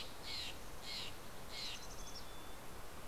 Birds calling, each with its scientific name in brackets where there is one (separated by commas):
Mountain Chickadee (Poecile gambeli), Steller's Jay (Cyanocitta stelleri)